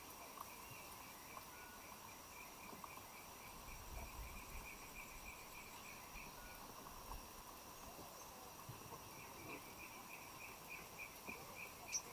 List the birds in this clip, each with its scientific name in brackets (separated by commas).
Black-throated Apalis (Apalis jacksoni)